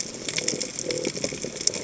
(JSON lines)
{"label": "biophony", "recorder": "HydroMoth"}